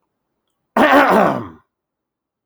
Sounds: Throat clearing